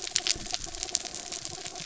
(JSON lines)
{"label": "anthrophony, mechanical", "recorder": "SoundTrap 300"}